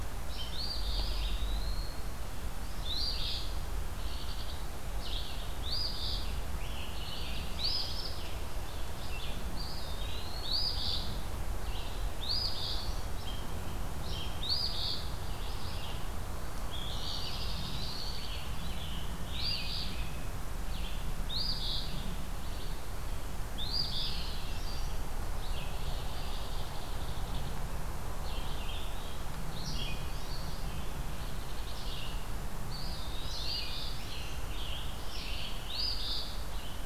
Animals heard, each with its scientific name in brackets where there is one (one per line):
Eastern Phoebe (Sayornis phoebe)
unknown mammal
Eastern Wood-Pewee (Contopus virens)
Scarlet Tanager (Piranga olivacea)
Red-eyed Vireo (Vireo olivaceus)